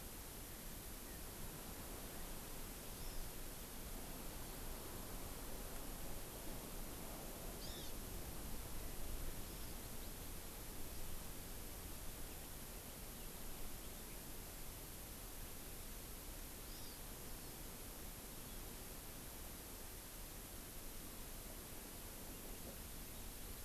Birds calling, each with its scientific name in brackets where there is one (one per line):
Hawaii Amakihi (Chlorodrepanis virens)